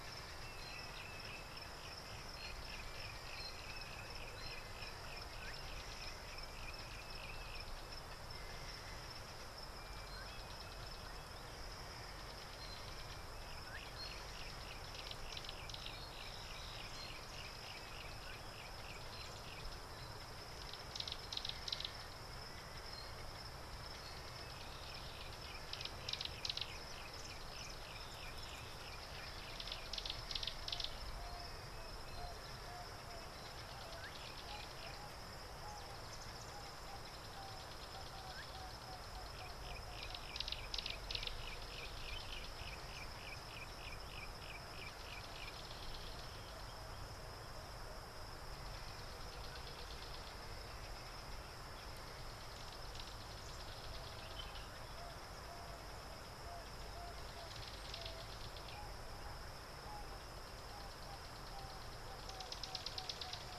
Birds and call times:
Yellow-breasted Apalis (Apalis flavida): 15.4s, 39.7s, 43.2s
Gray-backed Camaroptera (Camaroptera brevicaudata): 21.3s, 26.2s, 30.0s, 40.8s
Emerald-spotted Wood-Dove (Turtur chalcospilos): 35.7s, 61.6s

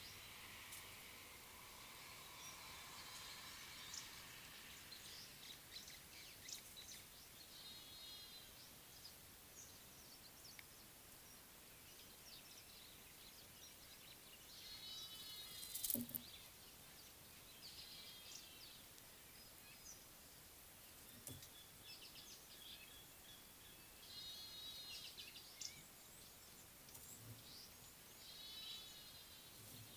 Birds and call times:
Red-faced Crombec (Sylvietta whytii): 25.6s

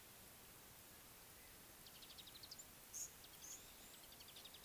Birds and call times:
Mariqua Sunbird (Cinnyris mariquensis): 2.2s
Speckle-fronted Weaver (Sporopipes frontalis): 3.0s

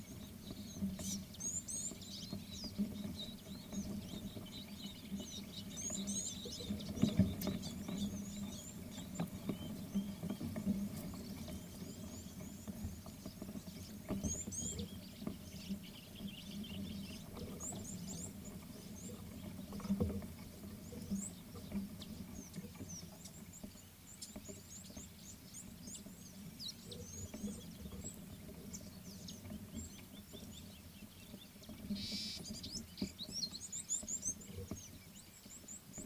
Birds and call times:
Red-cheeked Cordonbleu (Uraeginthus bengalus): 1.6s, 5.9s, 14.4s, 24.8s, 32.2s
Common Bulbul (Pycnonotus barbatus): 16.4s

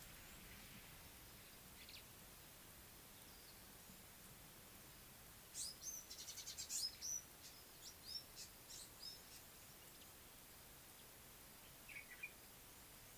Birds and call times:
African Gray Flycatcher (Bradornis microrhynchus): 6.6s
Common Bulbul (Pycnonotus barbatus): 12.1s

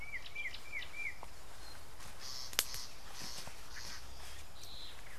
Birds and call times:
Black-backed Puffback (Dryoscopus cubla): 3.3s

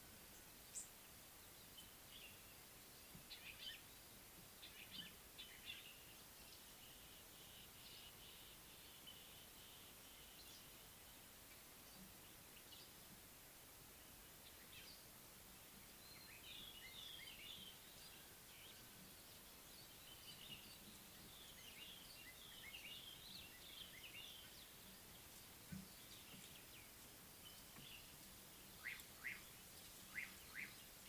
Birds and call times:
White-browed Robin-Chat (Cossypha heuglini): 17.1s, 23.2s
Slate-colored Boubou (Laniarius funebris): 29.4s

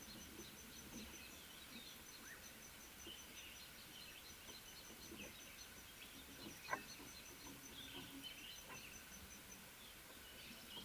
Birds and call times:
Bronze Sunbird (Nectarinia kilimensis): 4.6s

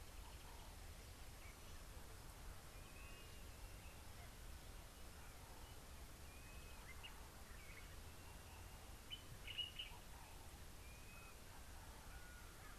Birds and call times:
Blue-naped Mousebird (Urocolius macrourus): 6.5s
Common Bulbul (Pycnonotus barbatus): 9.6s

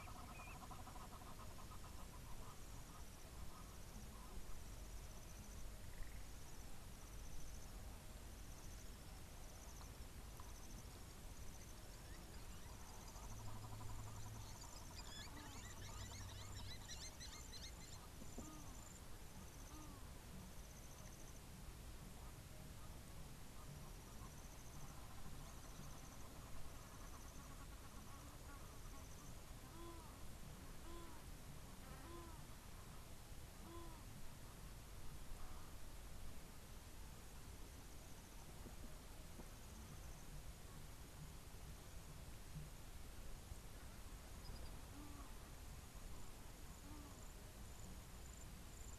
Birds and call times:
Egyptian Goose (Alopochen aegyptiaca): 1.2s, 31.1s
Blacksmith Lapwing (Vanellus armatus): 16.7s

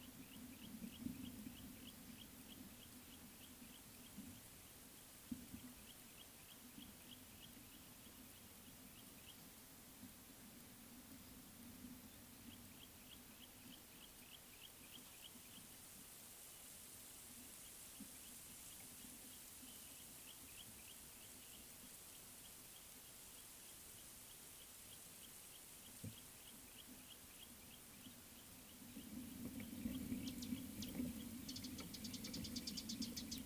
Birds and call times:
Yellow-breasted Apalis (Apalis flavida): 1.9s, 14.0s
Beautiful Sunbird (Cinnyris pulchellus): 32.4s

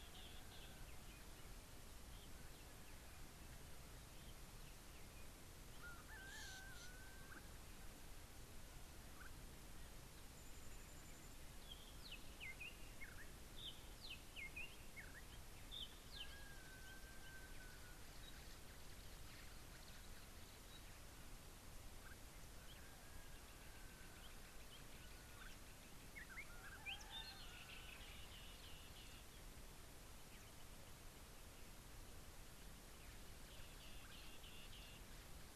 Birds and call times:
Spotted Morning-Thrush (Cichladusa guttata): 14.4s, 26.9s
Pygmy Batis (Batis perkeo): 20.7s
Somali Tit (Melaniparus thruppi): 28.0s, 34.3s

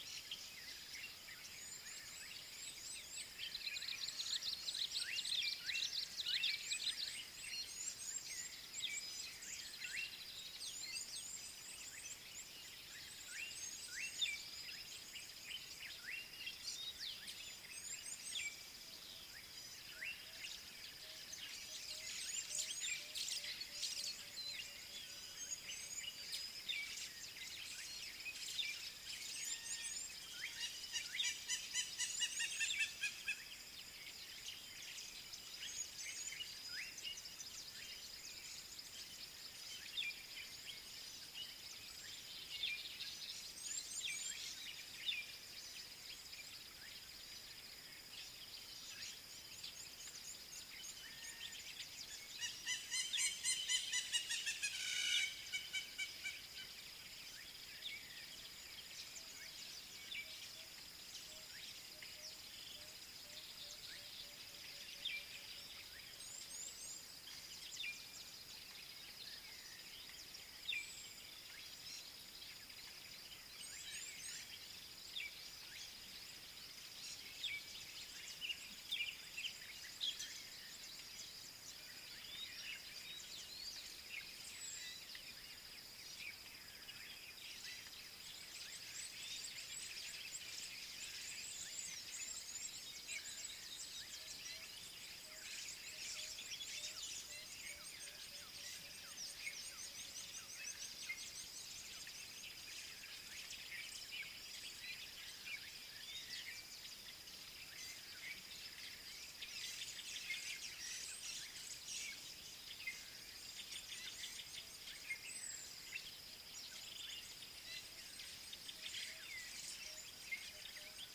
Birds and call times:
Red-cheeked Cordonbleu (Uraeginthus bengalus): 2.6s, 7.1s, 10.9s, 18.0s, 29.6s, 36.0s, 43.9s, 66.5s, 74.0s, 99.6s
Red-faced Crombec (Sylvietta whytii): 5.3s
Fork-tailed Drongo (Dicrurus adsimilis): 16.7s
Slate-colored Boubou (Laniarius funebris): 20.0s, 36.7s
Hamerkop (Scopus umbretta): 31.7s, 53.9s
Southern Black-Flycatcher (Melaenornis pammelaina): 84.7s, 115.4s

